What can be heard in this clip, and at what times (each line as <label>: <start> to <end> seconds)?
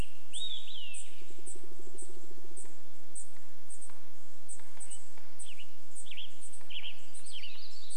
Olive-sided Flycatcher song: 0 to 2 seconds
Western Tanager song: 0 to 2 seconds
woodpecker drumming: 0 to 4 seconds
Dark-eyed Junco call: 0 to 8 seconds
Western Tanager song: 4 to 8 seconds
warbler song: 6 to 8 seconds